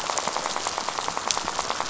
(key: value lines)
label: biophony, rattle
recorder: SoundTrap 500